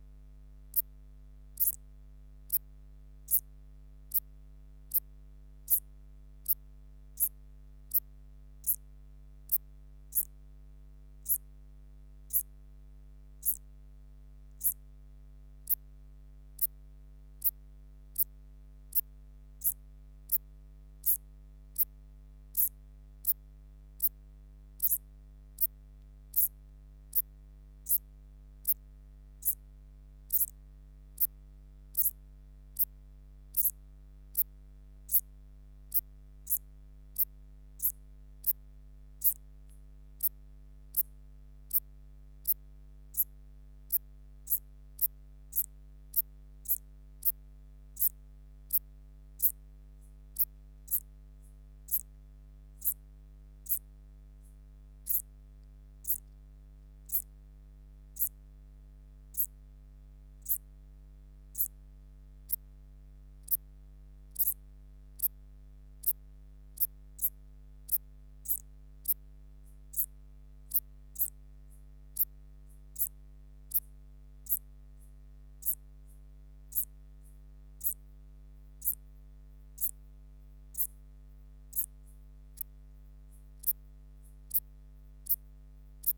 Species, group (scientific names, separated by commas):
Eupholidoptera uvarovi, Orthoptera